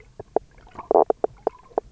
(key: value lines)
label: biophony, knock croak
recorder: SoundTrap 300